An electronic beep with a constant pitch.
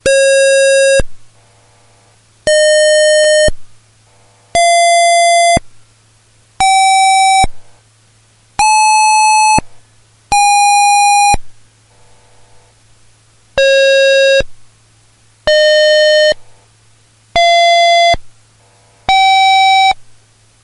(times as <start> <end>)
0.0 1.3, 2.4 3.7, 4.5 5.8, 6.6 7.7, 8.5 11.6, 13.5 14.6, 15.4 16.4, 17.3 18.3, 19.0 20.1